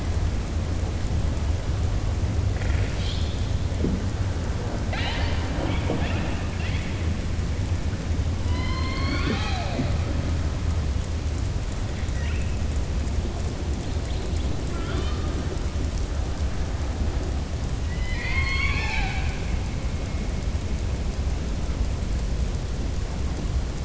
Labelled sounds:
17.8	19.4	killer whale, southern resident, 0.79 to 6.7 kHz

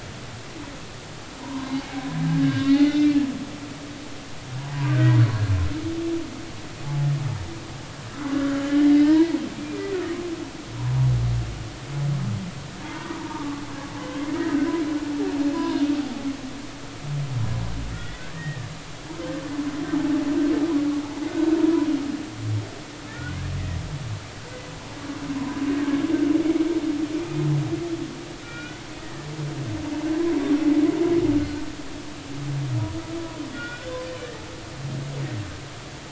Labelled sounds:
1.4	3.1	humpback whale, 0.90 to 4.3 kHz
4.8	5.1	humpback whale, 1.5 to 1.7 kHz
8.3	9.8	humpback whale, 0.86 to 2.5 kHz
12.9	13.6	humpback whale, 0.86 to 1.3 kHz
14.4	14.7	humpback whale, 1.5 to 1.7 kHz
15.5	15.8	humpback whale, 0.93 to 1.7 kHz
17.9	18.7	humpback whale, 1.7 to 2.1 kHz
21.3	21.5	humpback whale, 1.4 to 1.6 kHz
23.1	23.4	humpback whale, 1.3 to 2.0 kHz
25.4	25.6	humpback whale, 0.93 to 1.1 kHz
27.2	27.5	humpback whale, 2.4 to 2.5 kHz
28.4	29.3	humpback whale, 1.3 to 2.5 kHz
31.4	31.6	humpback whale, 1.4 to 1.6 kHz
33.5	34.0	humpback whale, 1.4 to 2.5 kHz

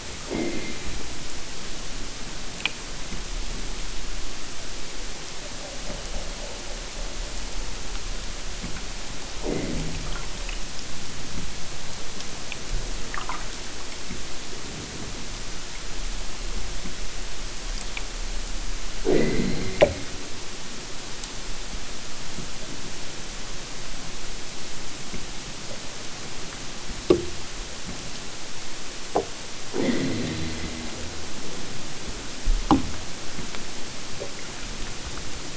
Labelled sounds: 0.2	1.0	killer whale, southern Alaska resident, 0 to 4.9 kHz
9.3	10.2	killer whale, southern Alaska resident, 0 to 3.2 kHz
19.1	20.1	killer whale, southern Alaska resident, 0 to 4.6 kHz
29.7	31.0	killer whale, southern Alaska resident, 0 to 4.9 kHz

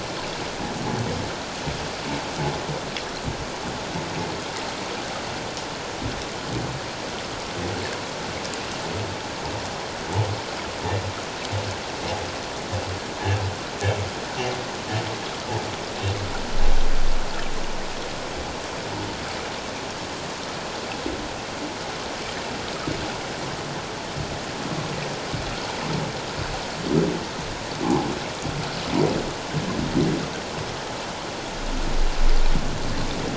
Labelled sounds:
27.8	28.1	humpback whale, 0.78 to 1.1 kHz

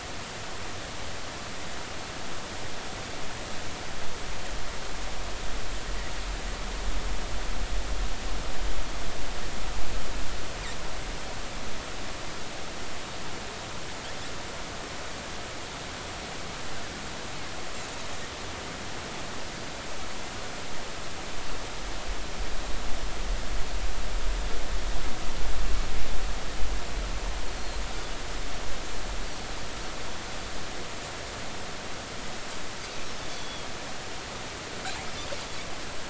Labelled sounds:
27.5	27.8	Pacific white-sided dolphin, 4.1 to 4.4 kHz
33.3	33.7	Pacific white-sided dolphin, 3.2 to 3.5 kHz

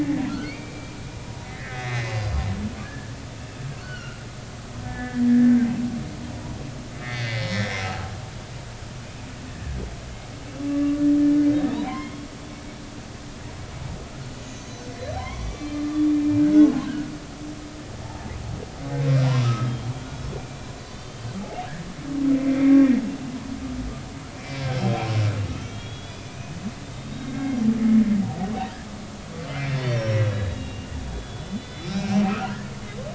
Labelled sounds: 0.3	1.0	humpback whale, 1.3 to 3.8 kHz
1.4	2.2	humpback whale, 1.5 to 4.1 kHz
2.8	3.1	humpback whale, 1.5 to 1.8 kHz
3.8	4.2	humpback whale, 1.3 to 4.5 kHz
4.8	5.5	humpback whale, 1.6 to 2.0 kHz
7.0	7.8	humpback whale, 1.7 to 5.7 kHz
9.5	9.8	humpback whale, 1.6 to 1.8 kHz
10.7	11.0	humpback whale, 1.1 to 1.2 kHz
11.7	12.3	humpback whale, 0.80 to 3.4 kHz
14.4	16.1	humpback whale, 0.93 to 6.6 kHz
18.0	18.3	humpback whale, 0.80 to 0.93 kHz
19.4	19.9	humpback whale, 1.2 to 3.3 kHz
20.8	21.3	humpback whale, 3.0 to 4.8 kHz
22.3	22.8	humpback whale, 2.0 to 2.4 kHz
24.3	25.1	humpback whale, 2.3 to 3.3 kHz
25.5	26.4	humpback whale, 2.7 to 5.0 kHz
26.8	27.7	humpback whale, 1.5 to 3.8 kHz
29.7	32.6	humpback whale, 1.2 to 6.0 kHz

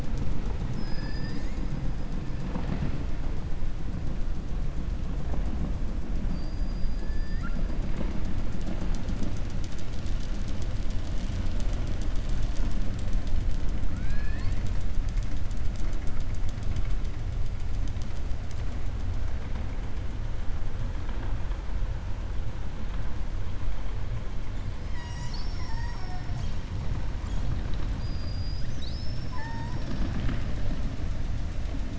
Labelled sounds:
13.9	14.6	killer whale, 1.1 to 5.0 kHz
25.4	26.3	killer whale, 0.69 to 2.3 kHz

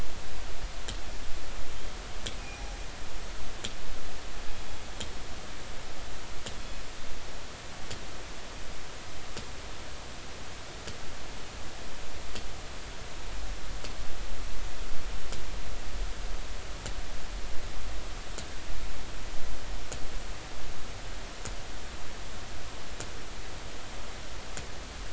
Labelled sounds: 2.4	2.8	killer whale, northern resident, G clan, call N24ii, 0.80 to 5.8 kHz

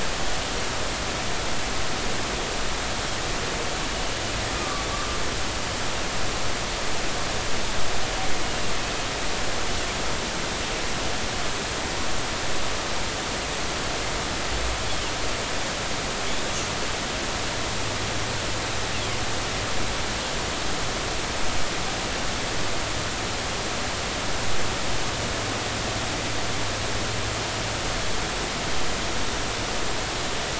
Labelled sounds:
4.5	5.2	humpback whale, 1.1 to 1.3 kHz

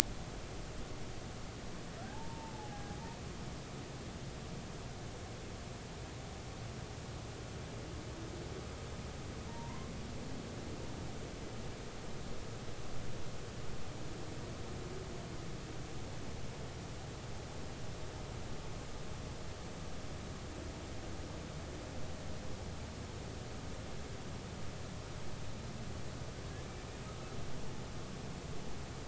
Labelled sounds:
2.1	2.9	humpback whale, 0.80 to 1.8 kHz
9.5	9.9	humpback whale, 0.86 to 1.1 kHz

